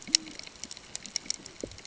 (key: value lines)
label: ambient
recorder: HydroMoth